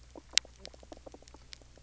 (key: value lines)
label: biophony, knock croak
recorder: SoundTrap 300